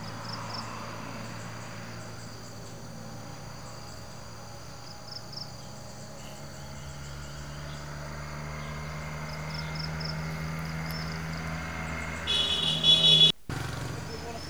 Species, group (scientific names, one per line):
Teleogryllus mitratus
Orthoptera